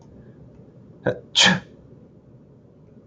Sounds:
Sneeze